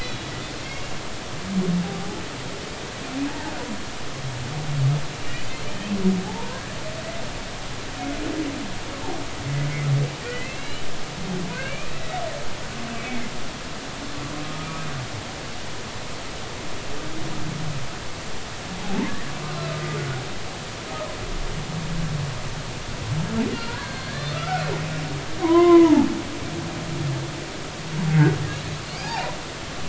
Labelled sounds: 0.0	0.3	humpback whale, 3.3 to 4.1 kHz
5.3	5.6	humpback whale, 2.8 to 3.1 kHz
6.3	6.8	humpback whale, 0.80 to 1.8 kHz
10.2	10.8	humpback whale, 1.8 to 3.0 kHz
11.5	11.9	humpback whale, 1.5 to 2.8 kHz
13.0	13.2	humpback whale, 2.2 to 2.6 kHz
14.4	14.9	humpback whale, 1.2 to 1.3 kHz
18.8	19.2	humpback whale, 0.80 to 1.2 kHz
23.5	24.7	humpback whale, 1.2 to 4.4 kHz
25.4	26.1	humpback whale, 0.80 to 2.1 kHz
28.1	28.4	humpback whale, 1.4 to 1.7 kHz
29.0	29.4	humpback whale, 0.80 to 1.9 kHz

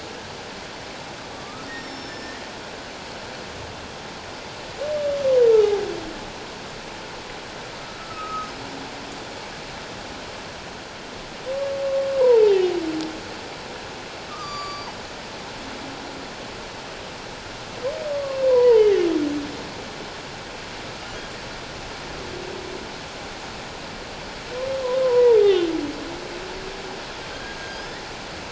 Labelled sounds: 1.3	2.4	humpback whale, 1.1 to 7.5 kHz
8.0	8.5	humpback whale, 1.2 to 1.4 kHz
12.2	12.8	humpback whale, 0.78 to 1.1 kHz
14.3	14.9	humpback whale, 1.1 to 7.1 kHz
18.1	19.1	humpback whale, 0.84 to 2.2 kHz
25.0	25.7	humpback whale, 0.81 to 3.3 kHz
27.3	27.8	humpback whale, 1.5 to 6.5 kHz

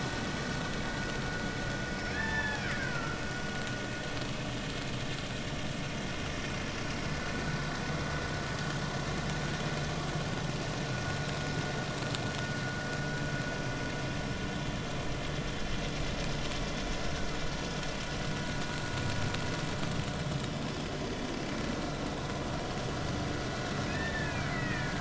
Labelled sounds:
2.1	3.2	killer whale, Bigg's (transient), 0.86 to 3.6 kHz
23.9	24.9	killer whale, Bigg's (transient), 1.6 to 3.7 kHz

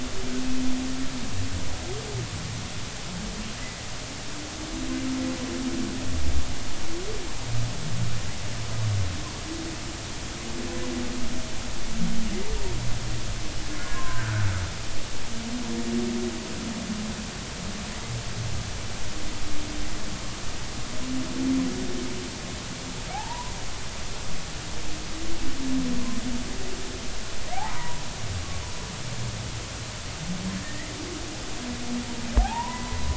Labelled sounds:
13.9	14.5	humpback whale, 0.96 to 1.7 kHz
23.1	23.5	humpback whale, 0.80 to 1.1 kHz
27.5	28.0	humpback whale, 0.80 to 1.1 kHz
30.6	30.9	humpback whale, 1.8 to 2.1 kHz
32.4	33.0	humpback whale, 0.80 to 1.1 kHz

